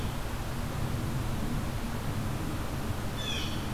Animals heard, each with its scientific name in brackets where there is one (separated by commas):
Blue Jay (Cyanocitta cristata)